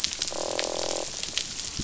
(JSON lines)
{"label": "biophony, croak", "recorder": "SoundTrap 500"}